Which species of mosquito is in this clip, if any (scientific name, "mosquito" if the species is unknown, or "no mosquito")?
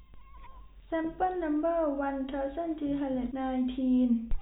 no mosquito